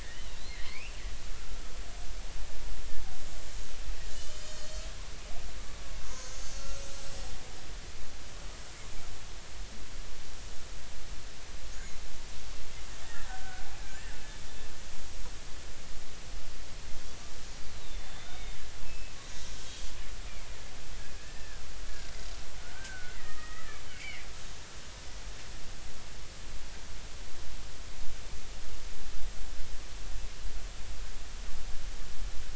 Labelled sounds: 0.0	1.0	killer whale, Bigg's (transient), 1.7 to 3.0 kHz
4.1	4.7	killer whale, Bigg's (transient), 2.8 to 7.5 kHz
6.3	6.9	killer whale, Bigg's (transient), 1.3 to 6.9 kHz
11.7	12.0	killer whale, Bigg's (transient), 6.3 to 7.0 kHz
13.0	13.6	killer whale, Bigg's (transient), 1.4 to 1.9 kHz
17.8	19.8	killer whale, Bigg's (transient), 2.1 to 3.9 kHz
21.2	24.3	killer whale, Bigg's (transient), 1.2 to 2.5 kHz

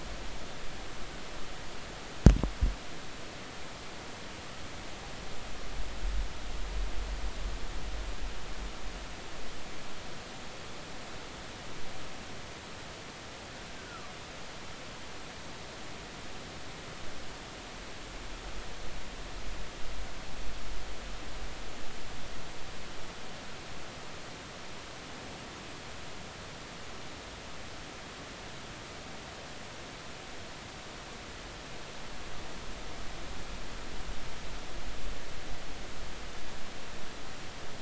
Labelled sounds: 13.8	14.1	killer whale, Bigg's (transient), 1.0 to 1.6 kHz

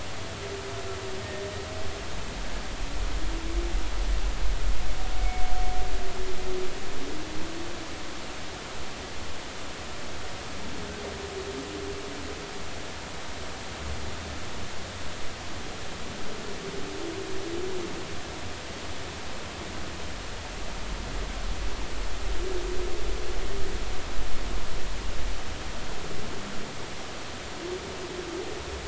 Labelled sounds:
5.2	5.4	humpback whale, 2.2 to 2.3 kHz

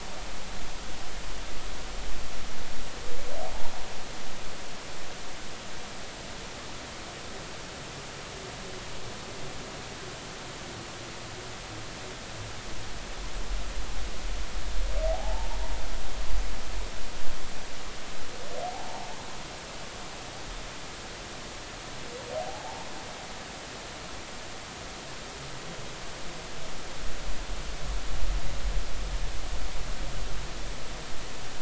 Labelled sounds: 15.1	15.5	humpback whale, 0.80 to 0.96 kHz
18.6	19.1	humpback whale, 0.80 to 0.96 kHz
22.4	22.9	humpback whale, 0.80 to 0.99 kHz

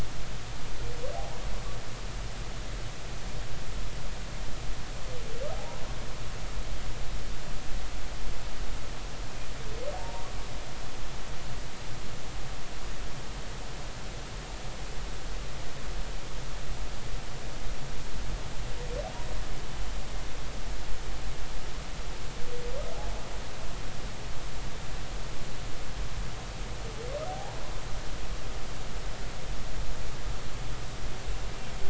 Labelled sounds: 5.5	5.8	humpback whale, 0.80 to 1.1 kHz
9.9	10.3	humpback whale, 0.80 to 0.99 kHz
27.3	27.6	humpback whale, 0.80 to 0.99 kHz

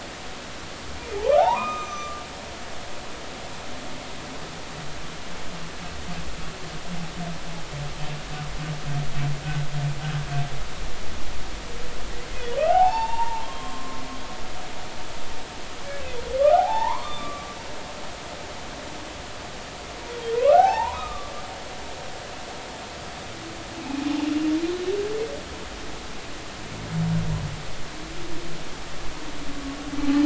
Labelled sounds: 1.1	2.2	humpback whale, 0.80 to 7.4 kHz
12.3	14.0	humpback whale, 0.80 to 5.5 kHz
16.4	17.5	humpback whale, 0.80 to 3.6 kHz
20.4	21.3	humpback whale, 0.80 to 1.6 kHz

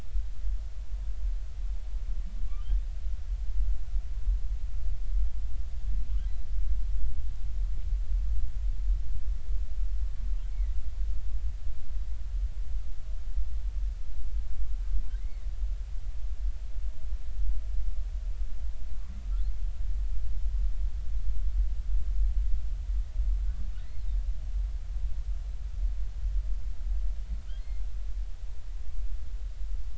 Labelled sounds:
10.5	10.8	humpback whale, 1.9 to 2.3 kHz
16.2	16.5	humpback whale, 1.8 to 2.3 kHz

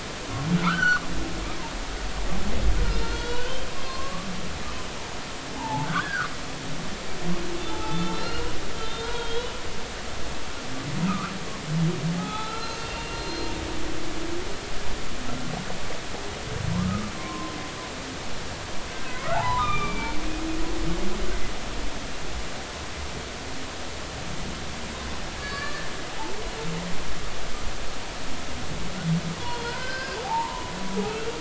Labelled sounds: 0.6	1.0	humpback whale, 0.90 to 3.1 kHz
2.8	4.5	humpback whale, 0.99 to 6.0 kHz
5.5	6.3	humpback whale, 0.80 to 1.8 kHz
7.7	8.5	humpback whale, 0.83 to 4.3 kHz
8.8	9.5	humpback whale, 0.90 to 4.0 kHz
11.1	13.5	humpback whale, 0.80 to 4.2 kHz
16.7	17.5	humpback whale, 0.93 to 1.5 kHz
18.9	20.2	humpback whale, 0.80 to 3.8 kHz
25.4	25.9	humpback whale, 1.1 to 4.7 kHz
29.4	30.7	humpback whale, 0.80 to 5.4 kHz

